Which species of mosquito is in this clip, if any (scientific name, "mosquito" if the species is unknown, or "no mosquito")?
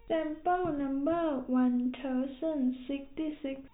no mosquito